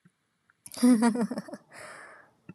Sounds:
Laughter